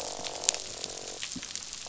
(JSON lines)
{"label": "biophony, croak", "recorder": "SoundTrap 500"}